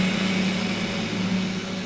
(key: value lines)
label: anthrophony, boat engine
recorder: SoundTrap 500